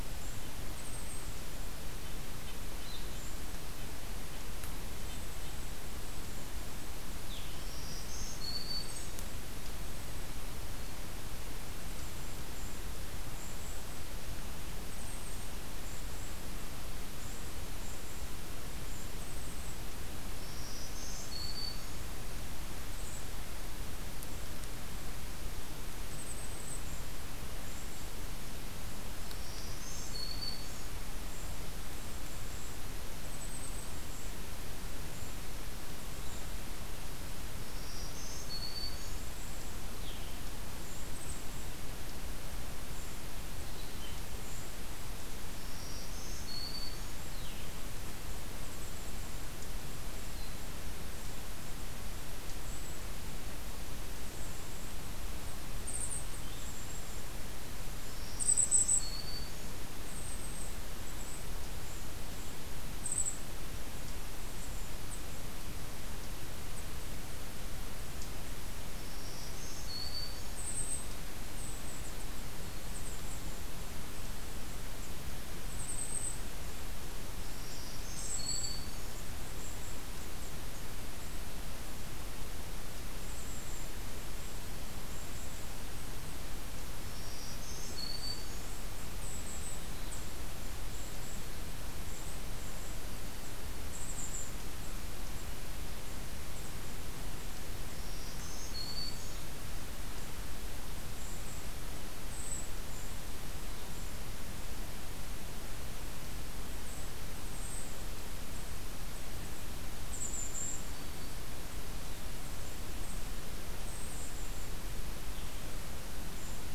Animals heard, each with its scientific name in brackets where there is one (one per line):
Blue-headed Vireo (Vireo solitarius)
Black-throated Green Warbler (Setophaga virens)
Golden-crowned Kinglet (Regulus satrapa)
Red-breasted Nuthatch (Sitta canadensis)